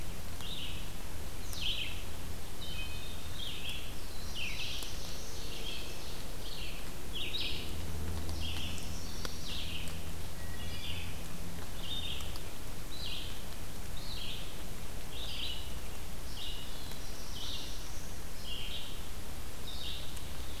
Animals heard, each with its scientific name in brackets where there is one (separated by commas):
Chestnut-sided Warbler (Setophaga pensylvanica), Ovenbird (Seiurus aurocapilla), Wood Thrush (Hylocichla mustelina), Red-eyed Vireo (Vireo olivaceus), Black-throated Blue Warbler (Setophaga caerulescens)